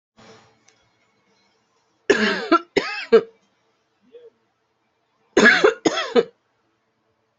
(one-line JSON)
{"expert_labels": [{"quality": "ok", "cough_type": "dry", "dyspnea": false, "wheezing": false, "stridor": false, "choking": false, "congestion": false, "nothing": true, "diagnosis": "COVID-19", "severity": "mild"}], "age": 50, "gender": "female", "respiratory_condition": false, "fever_muscle_pain": false, "status": "healthy"}